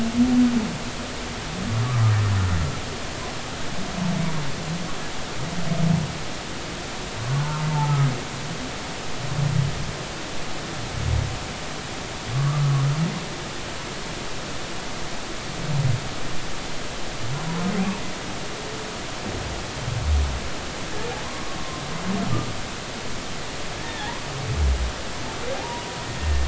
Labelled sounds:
7.4	8.1	humpback whale, 0.80 to 1.5 kHz
12.3	12.6	humpback whale, 1.1 to 1.3 kHz
21.6	21.8	humpback whale, 0.99 to 1.1 kHz
23.8	24.1	humpback whale, 1.6 to 2.0 kHz
26.2	26.4	humpback whale, 1.8 to 1.9 kHz

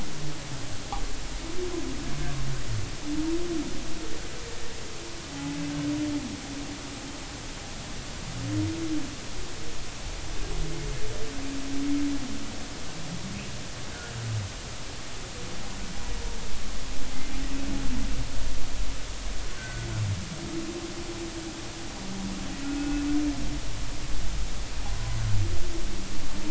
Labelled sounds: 5.3	5.6	humpback whale, 0.80 to 0.90 kHz
19.6	19.9	humpback whale, 1.4 to 1.6 kHz
22.6	23.0	humpback whale, 1.3 to 2.7 kHz

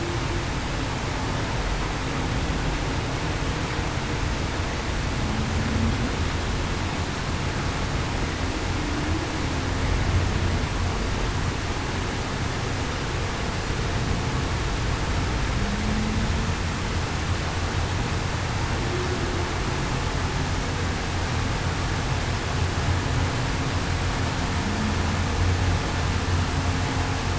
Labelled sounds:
15.5	16.1	humpback whale, 0.19 to 0.23 kHz

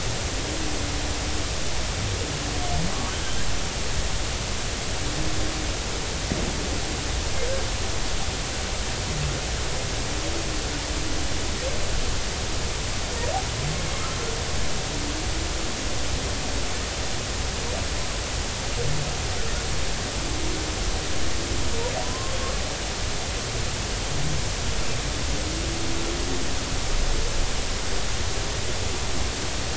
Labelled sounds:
22.0	22.3	humpback whale, 0.93 to 1.1 kHz

